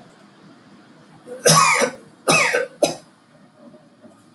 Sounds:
Cough